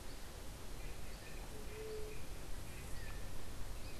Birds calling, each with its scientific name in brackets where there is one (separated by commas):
White-tipped Dove (Leptotila verreauxi)